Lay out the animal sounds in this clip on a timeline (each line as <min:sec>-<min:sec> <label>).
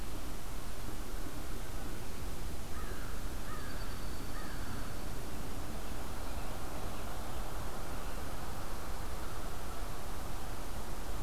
0:02.6-0:04.8 American Crow (Corvus brachyrhynchos)
0:03.3-0:05.2 Dark-eyed Junco (Junco hyemalis)